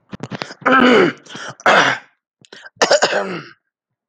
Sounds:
Throat clearing